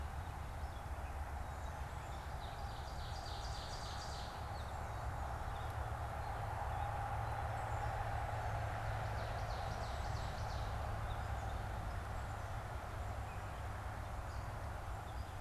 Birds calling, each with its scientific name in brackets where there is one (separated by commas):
Ovenbird (Seiurus aurocapilla)